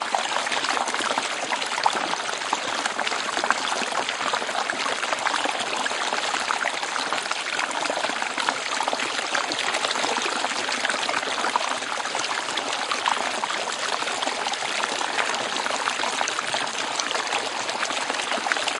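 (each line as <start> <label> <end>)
0.1 Water runs down a stream over rocks. 18.8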